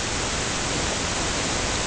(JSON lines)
{"label": "ambient", "recorder": "HydroMoth"}